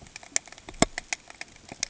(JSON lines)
{"label": "ambient", "recorder": "HydroMoth"}